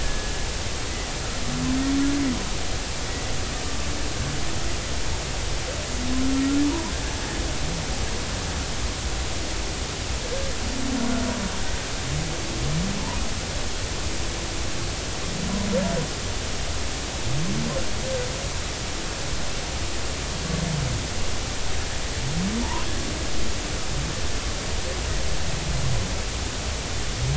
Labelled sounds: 0.0	0.5	killer whale, Bigg's (transient), 1.6 to 1.8 kHz
22.6	22.9	humpback whale, 0.83 to 1.1 kHz

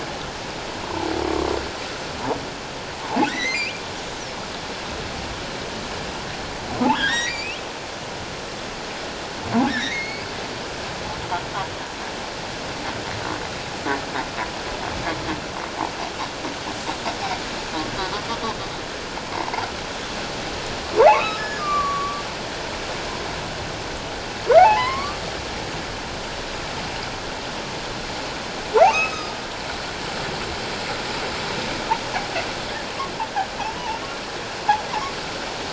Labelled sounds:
0.8	1.1	humpback whale, 0.78 to 1.1 kHz
3.2	3.8	humpback whale, 1.8 to 6.0 kHz
6.9	7.6	humpback whale, 1.4 to 4.0 kHz
9.7	10.2	humpback whale, 1.5 to 4.6 kHz
21.0	22.2	humpback whale, 0.78 to 5.3 kHz
24.6	25.2	humpback whale, 0.78 to 2.3 kHz
28.8	29.4	humpback whale, 1.1 to 5.2 kHz
33.8	34.0	humpback whale, 0.81 to 1.0 kHz

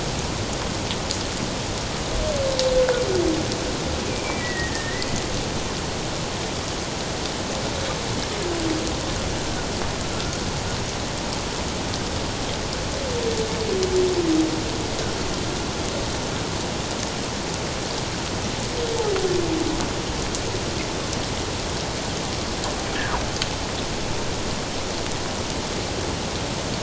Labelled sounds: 4.1	5.1	humpback whale, 1.8 to 2.6 kHz

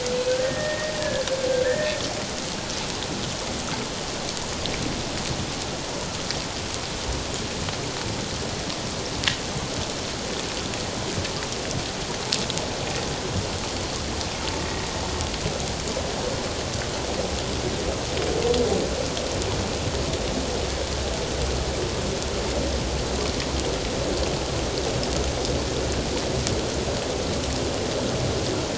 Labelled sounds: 1.5	2.0	humpback whale, 1.5 to 1.9 kHz

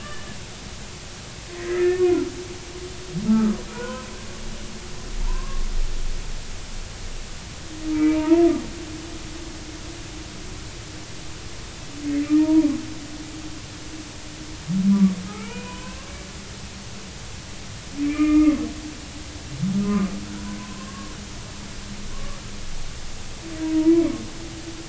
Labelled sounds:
0.0	0.3	humpback whale, 1.7 to 1.9 kHz
1.7	2.0	humpback whale, 1.7 to 2.2 kHz
3.3	4.1	humpback whale, 0.90 to 1.6 kHz
5.3	5.6	humpback whale, 0.90 to 1.2 kHz
7.9	8.4	humpback whale, 0.86 to 2.5 kHz
12.4	12.7	humpback whale, 0.86 to 0.99 kHz
14.9	16.0	humpback whale, 0.86 to 2.8 kHz
18.0	18.6	humpback whale, 1.1 to 2.5 kHz
19.8	21.1	humpback whale, 0.96 to 1.3 kHz
22.1	22.4	humpback whale, 1.0 to 1.2 kHz

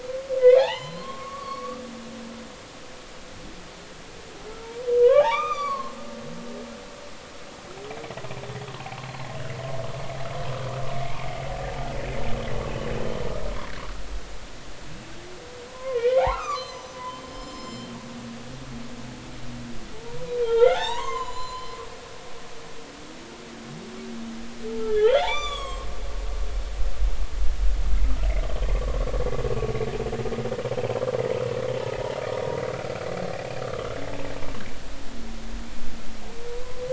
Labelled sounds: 0.6	1.8	humpback whale, 0.80 to 4.6 kHz
4.6	6.0	humpback whale, 0.80 to 6.1 kHz
11.0	11.4	humpback whale, 2.0 to 2.5 kHz
13.0	13.2	humpback whale, 3.0 to 3.1 kHz
15.7	17.0	humpback whale, 0.80 to 6.2 kHz
17.3	17.9	humpback whale, 3.1 to 7.3 kHz
19.9	21.8	humpback whale, 0.80 to 7.3 kHz
24.9	25.9	humpback whale, 1.0 to 7.9 kHz
28.8	29.1	humpback whale, 1.0 to 1.2 kHz
32.7	33.1	humpback whale, 1.3 to 1.5 kHz

